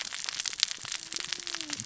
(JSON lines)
{"label": "biophony, cascading saw", "recorder": "SoundTrap 600 or HydroMoth"}